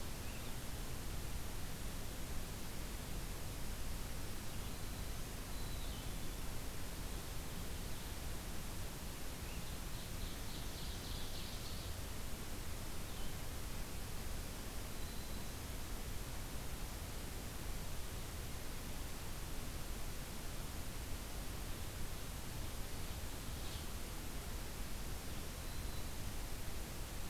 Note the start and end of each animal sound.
[0.00, 0.60] Red-eyed Vireo (Vireo olivaceus)
[4.31, 5.24] Black-throated Green Warbler (Setophaga virens)
[5.45, 6.54] Black-capped Chickadee (Poecile atricapillus)
[9.47, 12.14] Ovenbird (Seiurus aurocapilla)
[12.88, 13.53] Red-eyed Vireo (Vireo olivaceus)
[14.39, 15.83] Black-throated Green Warbler (Setophaga virens)
[25.14, 26.28] Black-throated Green Warbler (Setophaga virens)

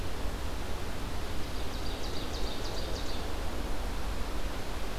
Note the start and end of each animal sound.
[1.42, 3.46] Ovenbird (Seiurus aurocapilla)

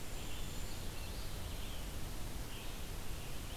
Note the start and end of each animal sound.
[0.00, 0.98] Brown Creeper (Certhia americana)
[0.00, 3.56] Red-eyed Vireo (Vireo olivaceus)

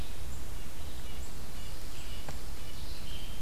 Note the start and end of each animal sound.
[0.14, 3.41] Red-eyed Vireo (Vireo olivaceus)
[0.46, 2.80] Red-breasted Nuthatch (Sitta canadensis)
[2.51, 3.41] Blue-headed Vireo (Vireo solitarius)

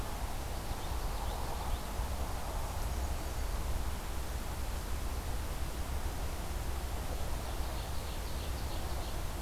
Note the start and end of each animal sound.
[0.43, 1.98] Common Yellowthroat (Geothlypis trichas)
[2.07, 3.77] Black-and-white Warbler (Mniotilta varia)
[6.87, 9.30] Ovenbird (Seiurus aurocapilla)

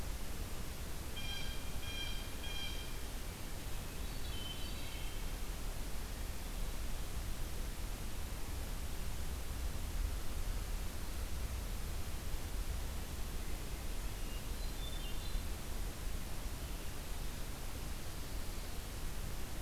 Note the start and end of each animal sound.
[0.81, 2.92] Blue Jay (Cyanocitta cristata)
[3.67, 5.46] Hermit Thrush (Catharus guttatus)
[4.42, 5.24] Wood Thrush (Hylocichla mustelina)
[13.95, 15.57] Hermit Thrush (Catharus guttatus)

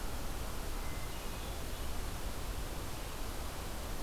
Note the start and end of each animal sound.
[0.72, 1.72] Hermit Thrush (Catharus guttatus)

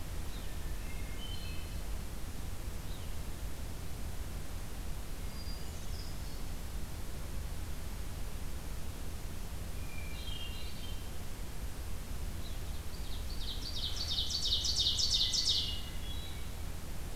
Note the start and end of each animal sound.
[0.41, 1.91] Hermit Thrush (Catharus guttatus)
[4.96, 6.83] Hermit Thrush (Catharus guttatus)
[9.63, 11.26] Hermit Thrush (Catharus guttatus)
[12.20, 16.03] Ovenbird (Seiurus aurocapilla)
[15.22, 16.61] Hermit Thrush (Catharus guttatus)

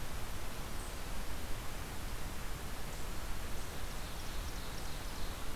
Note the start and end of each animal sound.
[3.76, 5.55] Ovenbird (Seiurus aurocapilla)

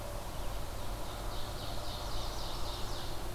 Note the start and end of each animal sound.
[0.79, 3.30] Ovenbird (Seiurus aurocapilla)
[1.83, 3.02] Chestnut-sided Warbler (Setophaga pensylvanica)

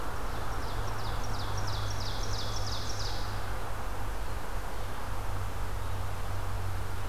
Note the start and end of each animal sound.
[0.00, 3.73] Ovenbird (Seiurus aurocapilla)

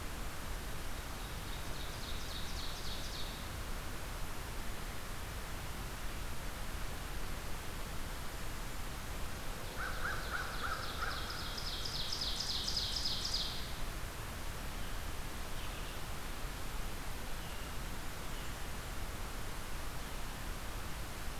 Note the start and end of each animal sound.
[0.79, 3.50] Ovenbird (Seiurus aurocapilla)
[9.71, 11.33] American Crow (Corvus brachyrhynchos)
[10.12, 13.63] Ovenbird (Seiurus aurocapilla)

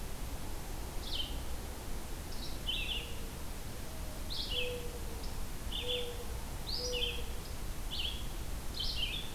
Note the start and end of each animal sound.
[0.94, 9.34] Red-eyed Vireo (Vireo olivaceus)
[2.92, 7.39] Mourning Dove (Zenaida macroura)

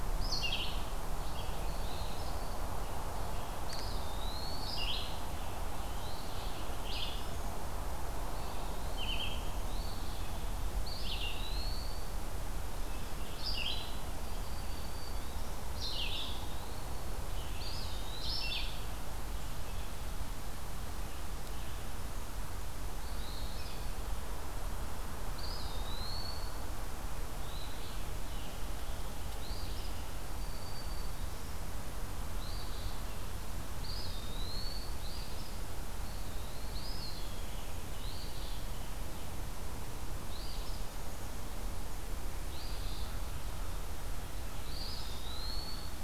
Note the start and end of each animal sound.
[0.00, 1.63] Red-eyed Vireo (Vireo olivaceus)
[1.52, 2.26] Eastern Phoebe (Sayornis phoebe)
[1.53, 2.72] Eastern Wood-Pewee (Contopus virens)
[3.59, 4.71] Eastern Wood-Pewee (Contopus virens)
[4.54, 18.90] Red-eyed Vireo (Vireo olivaceus)
[5.09, 6.84] Scarlet Tanager (Piranga olivacea)
[8.18, 9.47] Eastern Wood-Pewee (Contopus virens)
[9.60, 10.36] Eastern Phoebe (Sayornis phoebe)
[10.73, 12.15] Eastern Wood-Pewee (Contopus virens)
[14.11, 15.67] Black-throated Green Warbler (Setophaga virens)
[15.80, 17.23] Eastern Wood-Pewee (Contopus virens)
[17.48, 18.48] Eastern Wood-Pewee (Contopus virens)
[22.93, 23.97] Eastern Wood-Pewee (Contopus virens)
[22.96, 23.77] Eastern Phoebe (Sayornis phoebe)
[25.27, 26.71] Eastern Wood-Pewee (Contopus virens)
[27.40, 27.98] Eastern Phoebe (Sayornis phoebe)
[27.91, 30.16] Scarlet Tanager (Piranga olivacea)
[29.34, 29.92] Eastern Phoebe (Sayornis phoebe)
[30.27, 31.60] Black-throated Green Warbler (Setophaga virens)
[32.35, 33.08] Eastern Phoebe (Sayornis phoebe)
[33.80, 34.99] Eastern Wood-Pewee (Contopus virens)
[34.89, 35.64] Eastern Phoebe (Sayornis phoebe)
[35.95, 37.71] Eastern Wood-Pewee (Contopus virens)
[36.80, 39.26] Scarlet Tanager (Piranga olivacea)
[37.92, 38.69] Eastern Phoebe (Sayornis phoebe)
[40.18, 40.82] Eastern Phoebe (Sayornis phoebe)
[42.48, 43.12] Eastern Phoebe (Sayornis phoebe)
[44.62, 46.03] Eastern Wood-Pewee (Contopus virens)

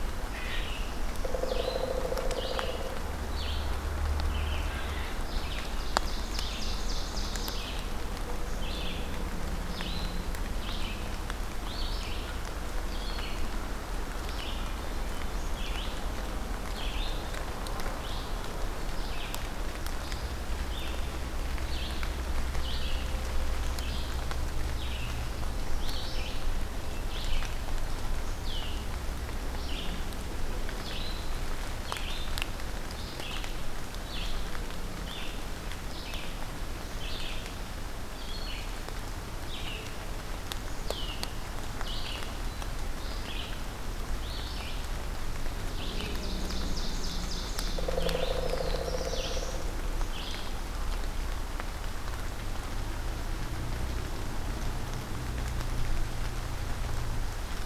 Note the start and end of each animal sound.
[0.00, 0.71] unknown mammal
[0.00, 14.71] Red-eyed Vireo (Vireo olivaceus)
[5.16, 7.79] Ovenbird (Seiurus aurocapilla)
[15.42, 50.54] Red-eyed Vireo (Vireo olivaceus)
[46.01, 47.98] Ovenbird (Seiurus aurocapilla)
[48.00, 49.76] Black-throated Blue Warbler (Setophaga caerulescens)

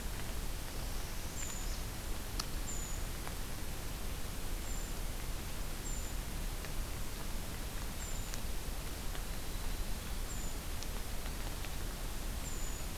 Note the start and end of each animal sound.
[0.00, 2.98] Brown Creeper (Certhia americana)
[0.55, 1.89] Northern Parula (Setophaga americana)
[4.56, 4.92] Brown Creeper (Certhia americana)
[5.80, 6.19] Brown Creeper (Certhia americana)
[7.95, 8.40] Brown Creeper (Certhia americana)
[10.22, 10.63] Brown Creeper (Certhia americana)
[12.43, 12.97] Brown Creeper (Certhia americana)

